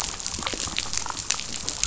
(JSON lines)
{"label": "biophony, damselfish", "recorder": "SoundTrap 500"}